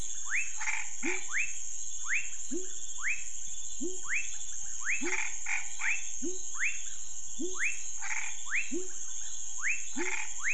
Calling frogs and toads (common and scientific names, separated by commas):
rufous frog (Leptodactylus fuscus), pepper frog (Leptodactylus labyrinthicus), Chaco tree frog (Boana raniceps)